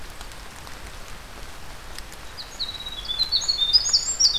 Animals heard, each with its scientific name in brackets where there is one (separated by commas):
Winter Wren (Troglodytes hiemalis)